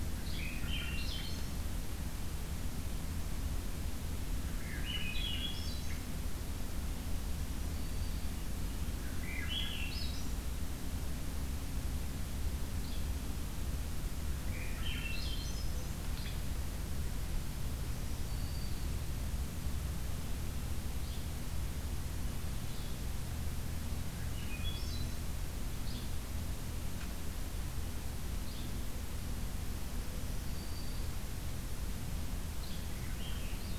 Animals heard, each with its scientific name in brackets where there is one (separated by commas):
Swainson's Thrush (Catharus ustulatus), Blue-headed Vireo (Vireo solitarius), Yellow-bellied Flycatcher (Empidonax flaviventris), Black-throated Green Warbler (Setophaga virens)